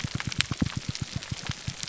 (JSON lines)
{"label": "biophony, pulse", "recorder": "SoundTrap 300"}